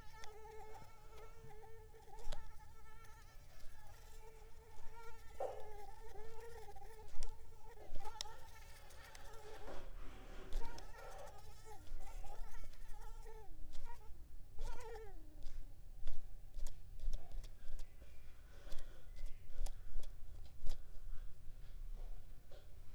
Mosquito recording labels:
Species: Mansonia uniformis; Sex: female; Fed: unfed; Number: one; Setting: cup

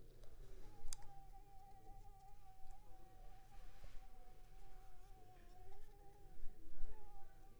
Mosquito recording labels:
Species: Anopheles squamosus; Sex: female; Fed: unfed; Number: one; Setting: cup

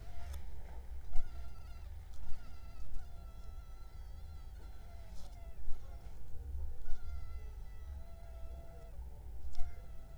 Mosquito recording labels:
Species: Culex pipiens complex; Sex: female; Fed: unfed; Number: one; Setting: cup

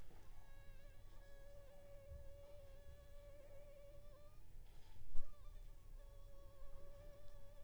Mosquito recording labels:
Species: Anopheles funestus s.s.; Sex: female; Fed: unfed; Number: one; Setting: cup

